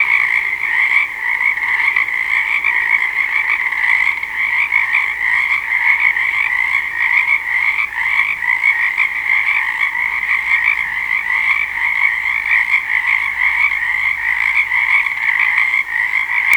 Do these animals eat flies?
yes